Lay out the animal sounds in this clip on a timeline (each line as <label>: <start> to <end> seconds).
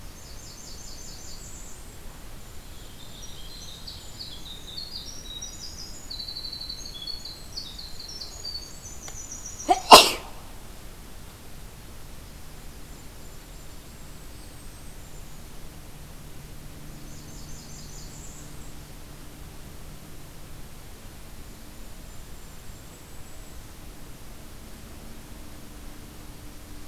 Blackburnian Warbler (Setophaga fusca): 0.0 to 2.1 seconds
Golden-crowned Kinglet (Regulus satrapa): 2.0 to 4.8 seconds
Winter Wren (Troglodytes hiemalis): 2.8 to 9.9 seconds
Golden-crowned Kinglet (Regulus satrapa): 12.4 to 15.6 seconds
Blackburnian Warbler (Setophaga fusca): 16.6 to 18.9 seconds
Golden-crowned Kinglet (Regulus satrapa): 21.3 to 24.0 seconds